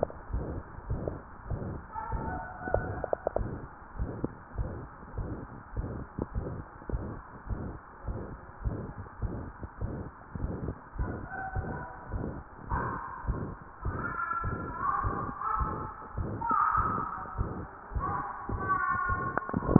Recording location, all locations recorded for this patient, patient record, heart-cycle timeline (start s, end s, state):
mitral valve (MV)
aortic valve (AV)+pulmonary valve (PV)+tricuspid valve (TV)+mitral valve (MV)
#Age: Adolescent
#Sex: Male
#Height: 153.0 cm
#Weight: 53.9 kg
#Pregnancy status: False
#Murmur: Present
#Murmur locations: aortic valve (AV)+mitral valve (MV)+pulmonary valve (PV)+tricuspid valve (TV)
#Most audible location: tricuspid valve (TV)
#Systolic murmur timing: Holosystolic
#Systolic murmur shape: Plateau
#Systolic murmur grading: III/VI or higher
#Systolic murmur pitch: High
#Systolic murmur quality: Harsh
#Diastolic murmur timing: nan
#Diastolic murmur shape: nan
#Diastolic murmur grading: nan
#Diastolic murmur pitch: nan
#Diastolic murmur quality: nan
#Outcome: Abnormal
#Campaign: 2015 screening campaign
0.00	4.34	unannotated
4.34	4.56	diastole
4.56	4.72	S1
4.72	4.80	systole
4.80	4.88	S2
4.88	5.16	diastole
5.16	5.27	S1
5.27	5.39	systole
5.39	5.48	S2
5.48	5.74	diastole
5.74	5.90	S1
5.90	5.99	systole
5.99	6.06	S2
6.06	6.34	diastole
6.34	6.43	S1
6.43	6.55	systole
6.55	6.64	S2
6.64	6.90	diastole
6.90	7.02	S1
7.02	7.12	systole
7.12	7.22	S2
7.22	7.47	diastole
7.47	7.60	S1
7.60	7.68	systole
7.68	7.79	S2
7.79	8.05	diastole
8.05	8.15	S1
8.15	8.30	systole
8.30	8.38	S2
8.38	8.62	diastole
8.62	8.74	S1
8.74	8.86	systole
8.86	8.93	S2
8.93	9.20	diastole
9.20	9.36	S1
9.36	9.45	systole
9.45	9.55	S2
9.55	9.79	diastole
9.79	9.90	S1
9.90	10.04	systole
10.04	10.12	S2
10.12	10.42	diastole
10.42	10.50	S1
10.50	10.64	systole
10.64	10.76	S2
10.76	10.96	diastole
10.96	11.09	S1
11.09	11.18	systole
11.18	11.28	S2
11.28	11.54	diastole
11.54	11.64	S1
11.64	11.78	systole
11.78	11.87	S2
11.87	12.10	diastole
12.10	12.22	S1
12.22	12.33	systole
12.33	12.45	S2
12.45	12.70	diastole
12.70	12.80	S1
12.80	12.92	systole
12.92	13.03	S2
13.03	13.26	diastole
13.26	13.38	S1
13.38	13.47	systole
13.47	13.57	S2
13.57	13.84	diastole
13.84	14.00	S1
14.00	14.08	systole
14.08	14.18	S2
14.18	14.44	diastole
14.44	14.60	S1
14.60	14.68	systole
14.68	14.76	S2
14.76	15.02	diastole
15.02	15.18	S1
15.18	15.22	systole
15.22	15.30	S2
15.30	15.58	diastole
15.58	15.74	S1
15.74	15.82	systole
15.82	15.94	S2
15.94	16.16	diastole
16.16	19.79	unannotated